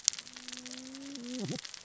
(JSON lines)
{"label": "biophony, cascading saw", "recorder": "SoundTrap 600 or HydroMoth"}